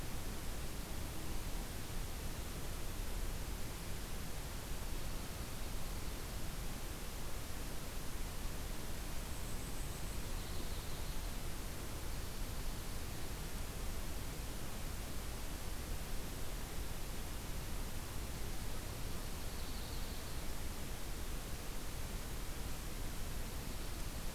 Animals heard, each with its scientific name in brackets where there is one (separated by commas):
Golden-crowned Kinglet (Regulus satrapa), Yellow-rumped Warbler (Setophaga coronata)